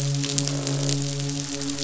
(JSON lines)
{"label": "biophony, midshipman", "recorder": "SoundTrap 500"}
{"label": "biophony, croak", "recorder": "SoundTrap 500"}